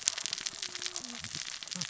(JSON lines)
{"label": "biophony, cascading saw", "recorder": "SoundTrap 600 or HydroMoth"}